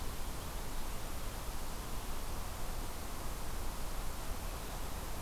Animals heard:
forest ambience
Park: Acadia National Park